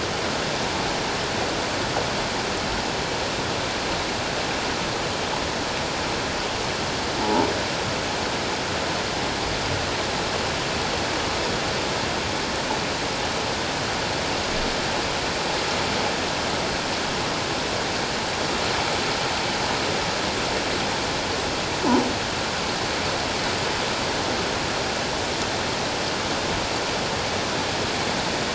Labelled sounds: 7.2	7.5	croaking sound likely from a nearby submerged object, 0.81 to 0.97 kHz

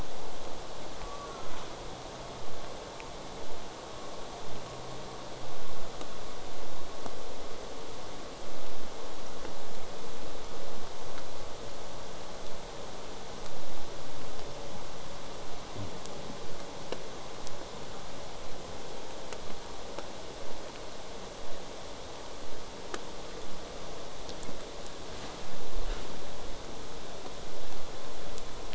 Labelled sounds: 0.9	1.5	killer whale, southern resident, J pod, call S04, 0.35 to 1.7 kHz

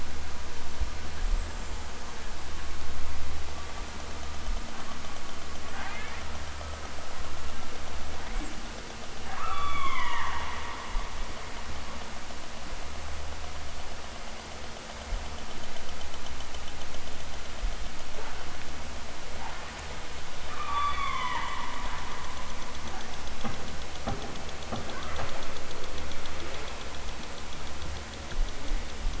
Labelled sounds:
5.7	6.3	killer whale, southern Alaska resident, 0.46 to 5.3 kHz
9.4	10.4	killer whale, southern Alaska resident, 0.55 to 4.0 kHz
20.5	21.6	killer whale, southern Alaska resident, 0.41 to 4.8 kHz

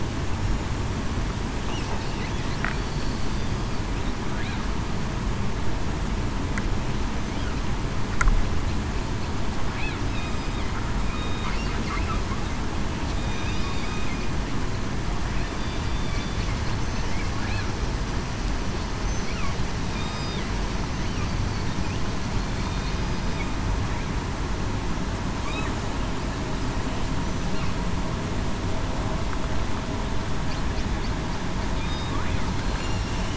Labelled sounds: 13.1	13.5	killer whale, southern resident, 3.6 to 3.7 kHz
15.9	16.4	killer whale, southern resident, 3.4 to 3.6 kHz
19.9	20.4	killer whale, southern resident, 3.5 to 5.0 kHz
22.6	23.0	killer whale, southern resident, 3.6 to 3.7 kHz
32.5	33.0	killer whale, southern resident, 4.1 to 4.3 kHz

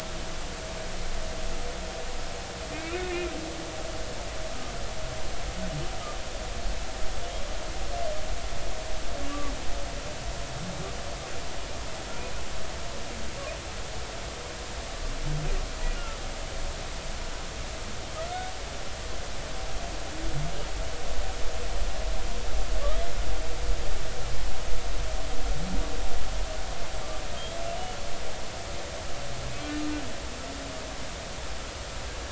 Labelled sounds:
2.7	3.3	humpback whale, 2.1 to 2.8 kHz
16.0	16.2	humpback whale, 1.2 to 1.5 kHz
29.5	29.8	humpback whale, 2.2 to 2.4 kHz

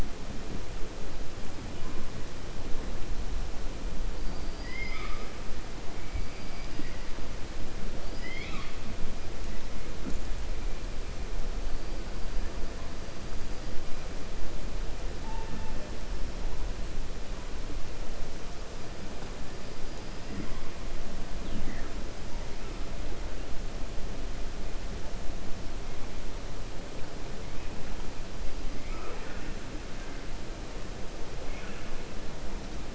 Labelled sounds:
4.2	5.3	killer whale, 1.0 to 5.1 kHz
6.3	6.7	killer whale, 4.7 to 5.0 kHz
8.0	8.8	killer whale, 0.84 to 5.3 kHz
28.7	29.5	killer whale, 0.37 to 2.8 kHz

